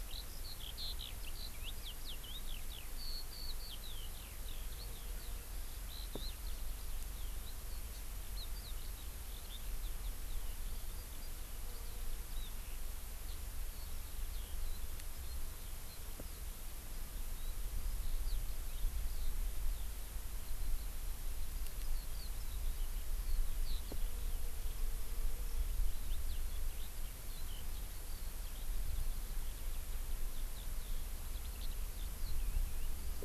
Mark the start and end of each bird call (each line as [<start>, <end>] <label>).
[0.00, 33.24] Eurasian Skylark (Alauda arvensis)